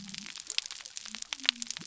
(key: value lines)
label: biophony
recorder: SoundTrap 300